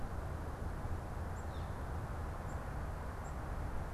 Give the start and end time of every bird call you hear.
[0.00, 3.93] Black-capped Chickadee (Poecile atricapillus)
[1.27, 1.87] Northern Flicker (Colaptes auratus)

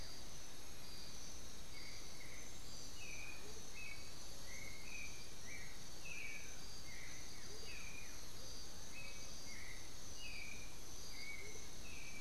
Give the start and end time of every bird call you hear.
[0.00, 12.20] Black-billed Thrush (Turdus ignobilis)
[0.32, 1.72] unidentified bird
[3.32, 12.20] Amazonian Motmot (Momotus momota)
[6.12, 8.32] Blue-gray Saltator (Saltator coerulescens)

